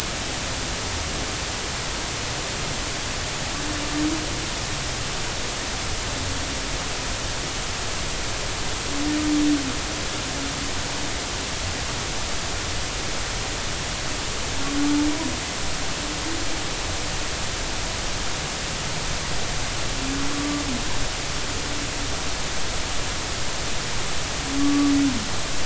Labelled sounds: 20.3	20.6	humpback whale, 1.0 to 1.2 kHz
24.6	24.9	humpback whale, 1.1 to 1.2 kHz

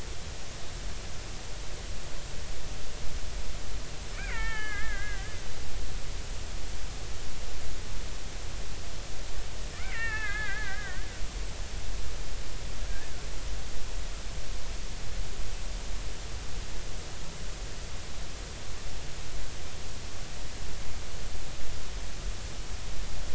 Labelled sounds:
4.1	5.3	killer whale, Bigg's (transient), 0.80 to 3.3 kHz
9.8	11.0	killer whale, Bigg's (transient), 0.83 to 2.8 kHz

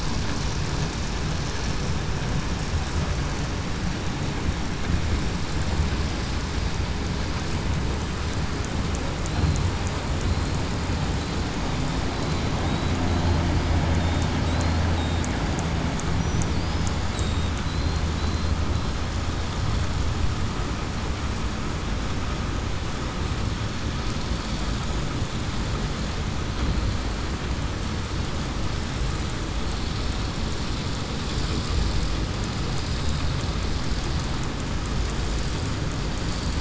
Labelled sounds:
14.4	14.8	killer whale, southern resident, 3.8 to 4.3 kHz
17.1	17.5	killer whale, southern resident, 3.7 to 3.9 kHz
18.2	18.5	killer whale, southern resident, 3.8 to 4.2 kHz

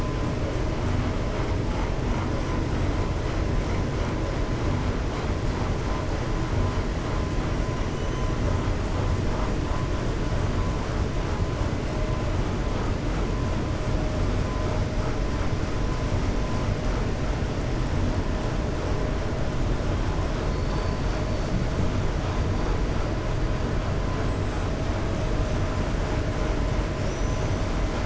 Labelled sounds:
20.4	21.2	killer whale, 3.5 to 5.5 kHz
26.9	27.6	killer whale, 5.1 to 6.7 kHz

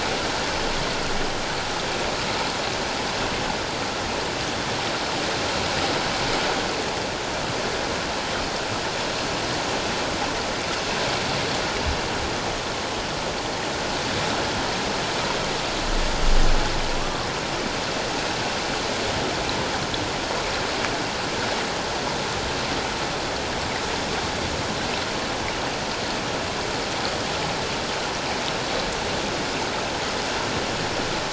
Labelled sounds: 16.9	17.3	humpback whale, 0.94 to 1.2 kHz

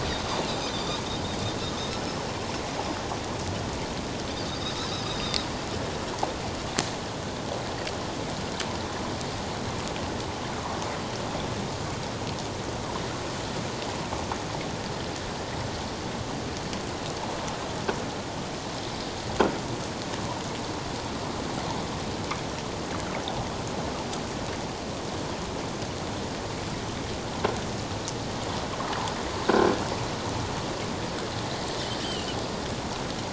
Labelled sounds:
0.7	1.0	Pacific white-sided dolphin, 3.4 to 3.9 kHz
32.0	32.3	Pacific white-sided dolphin, 2.7 to 3.2 kHz

